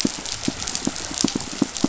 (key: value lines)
label: biophony, pulse
recorder: SoundTrap 500